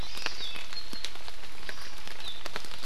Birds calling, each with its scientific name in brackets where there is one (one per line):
Hawaii Amakihi (Chlorodrepanis virens)